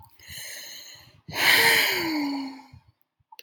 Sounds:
Sigh